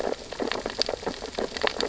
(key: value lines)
label: biophony, sea urchins (Echinidae)
recorder: SoundTrap 600 or HydroMoth